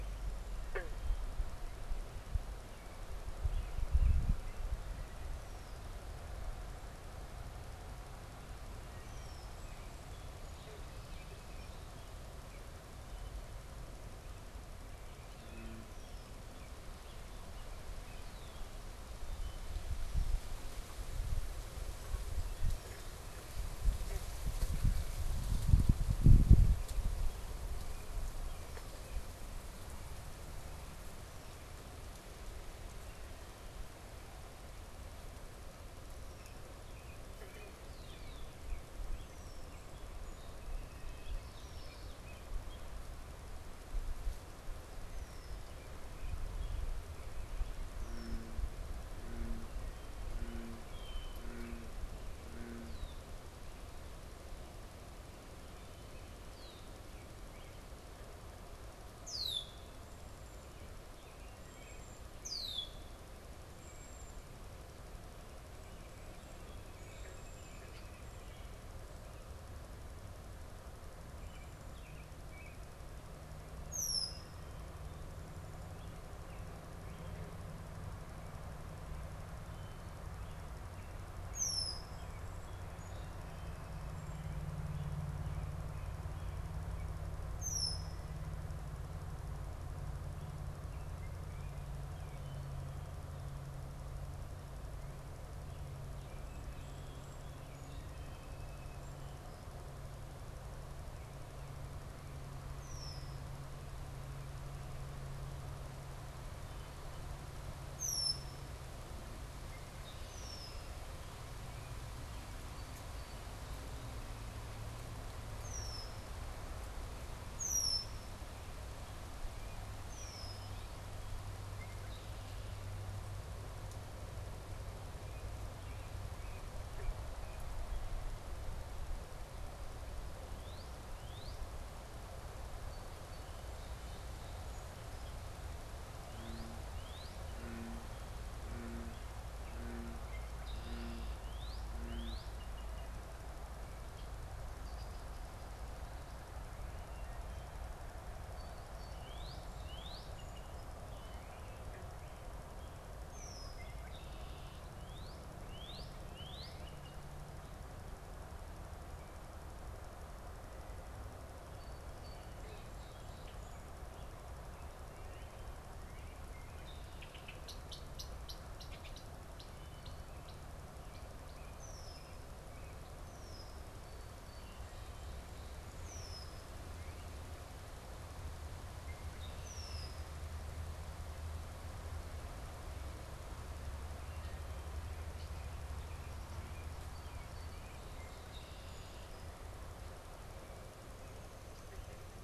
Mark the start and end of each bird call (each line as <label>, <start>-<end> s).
American Robin (Turdus migratorius), 0.0-5.0 s
Red-winged Blackbird (Agelaius phoeniceus), 9.0-9.8 s
Song Sparrow (Melospiza melodia), 10.1-12.0 s
American Robin (Turdus migratorius), 15.4-19.7 s
Red-winged Blackbird (Agelaius phoeniceus), 15.7-18.9 s
American Robin (Turdus migratorius), 27.2-29.3 s
American Robin (Turdus migratorius), 36.2-38.7 s
Red-winged Blackbird (Agelaius phoeniceus), 39.3-39.7 s
Song Sparrow (Melospiza melodia), 40.0-41.9 s
Common Yellowthroat (Geothlypis trichas), 41.3-42.3 s
American Robin (Turdus migratorius), 41.7-43.1 s
Red-winged Blackbird (Agelaius phoeniceus), 45.0-53.4 s
Red-winged Blackbird (Agelaius phoeniceus), 56.1-63.1 s
Cedar Waxwing (Bombycilla cedrorum), 61.4-68.2 s
American Robin (Turdus migratorius), 71.1-73.0 s
Red-winged Blackbird (Agelaius phoeniceus), 73.7-74.6 s
Red-winged Blackbird (Agelaius phoeniceus), 81.4-82.3 s
Song Sparrow (Melospiza melodia), 82.9-83.2 s
Red-winged Blackbird (Agelaius phoeniceus), 87.4-88.4 s
Song Sparrow (Melospiza melodia), 97.7-99.4 s
Red-winged Blackbird (Agelaius phoeniceus), 102.6-111.1 s
Red-winged Blackbird (Agelaius phoeniceus), 115.3-120.9 s
American Robin (Turdus migratorius), 118.9-121.2 s
Red-winged Blackbird (Agelaius phoeniceus), 121.7-123.0 s
American Robin (Turdus migratorius), 125.1-127.8 s
Northern Cardinal (Cardinalis cardinalis), 130.4-131.7 s
Song Sparrow (Melospiza melodia), 132.8-135.5 s
Northern Cardinal (Cardinalis cardinalis), 136.2-137.6 s
Red-winged Blackbird (Agelaius phoeniceus), 140.4-141.4 s
Northern Cardinal (Cardinalis cardinalis), 141.3-142.6 s
Red-winged Blackbird (Agelaius phoeniceus), 142.6-145.3 s
unidentified bird, 148.4-150.9 s
Northern Cardinal (Cardinalis cardinalis), 149.1-150.3 s
Red-winged Blackbird (Agelaius phoeniceus), 153.2-154.9 s
Northern Cardinal (Cardinalis cardinalis), 155.1-157.1 s
Song Sparrow (Melospiza melodia), 161.6-164.1 s
Red-winged Blackbird (Agelaius phoeniceus), 166.6-170.9 s
Red-winged Blackbird (Agelaius phoeniceus), 171.6-180.5 s
American Robin (Turdus migratorius), 186.6-188.6 s
Song Sparrow (Melospiza melodia), 186.9-188.6 s
Red-winged Blackbird (Agelaius phoeniceus), 188.4-189.7 s